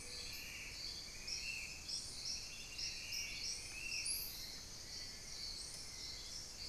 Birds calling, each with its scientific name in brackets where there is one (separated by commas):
Spot-winged Antshrike (Pygiptila stellaris), Hauxwell's Thrush (Turdus hauxwelli), Amazonian Pygmy-Owl (Glaucidium hardyi)